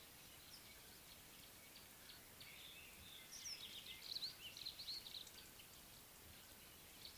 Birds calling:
Brimstone Canary (Crithagra sulphurata)

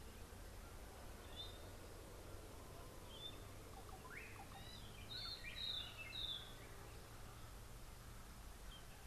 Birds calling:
Slate-colored Boubou (Laniarius funebris), White-browed Robin-Chat (Cossypha heuglini)

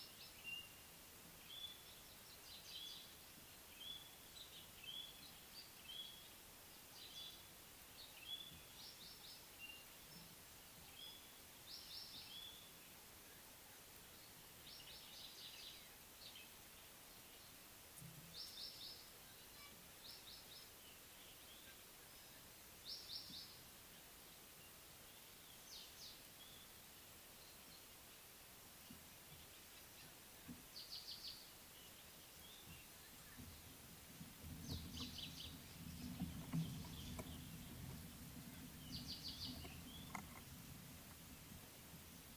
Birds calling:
African Pied Wagtail (Motacilla aguimp), White-browed Robin-Chat (Cossypha heuglini)

